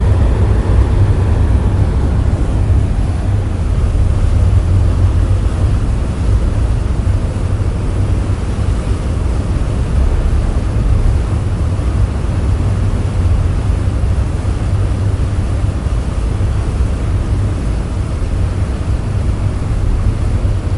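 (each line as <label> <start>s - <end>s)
A ferry cuts through the ocean, its bow splitting the water into splashes and waves. 0.1s - 20.7s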